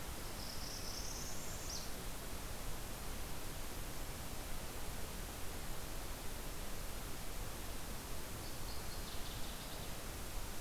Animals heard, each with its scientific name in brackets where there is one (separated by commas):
Northern Waterthrush (Parkesia noveboracensis), Northern Parula (Setophaga americana)